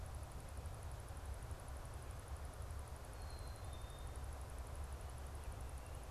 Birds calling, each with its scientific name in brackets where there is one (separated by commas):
Black-capped Chickadee (Poecile atricapillus)